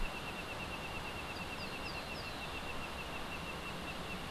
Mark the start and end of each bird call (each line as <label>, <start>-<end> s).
Cabanis's Ground-Sparrow (Melozone cabanisi), 1.3-2.8 s